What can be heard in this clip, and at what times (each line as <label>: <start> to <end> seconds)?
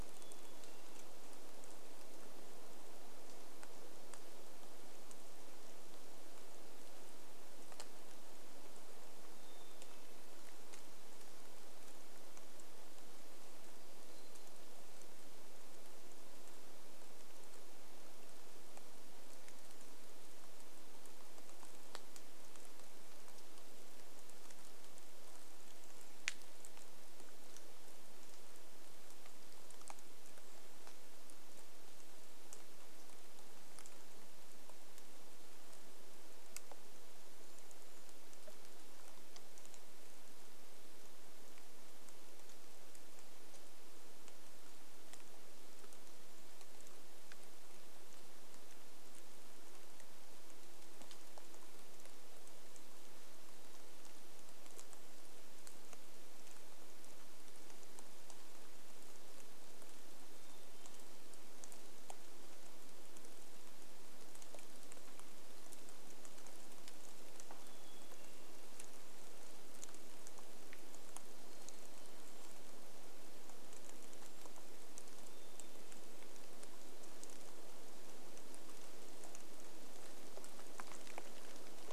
Black-capped Chickadee song: 0 to 2 seconds
rain: 0 to 82 seconds
Black-capped Chickadee song: 8 to 12 seconds
Black-capped Chickadee song: 14 to 16 seconds
Brown Creeper call: 20 to 22 seconds
Brown Creeper call: 24 to 28 seconds
Brown Creeper call: 36 to 38 seconds
Brown Creeper call: 46 to 48 seconds
Black-capped Chickadee song: 60 to 62 seconds
Black-capped Chickadee song: 66 to 76 seconds
Brown Creeper call: 72 to 76 seconds